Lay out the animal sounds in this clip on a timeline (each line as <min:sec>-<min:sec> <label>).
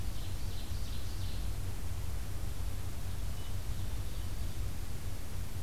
0:00.0-0:01.5 Ovenbird (Seiurus aurocapilla)
0:02.9-0:04.4 Ovenbird (Seiurus aurocapilla)